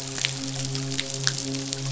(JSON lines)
{"label": "biophony, midshipman", "recorder": "SoundTrap 500"}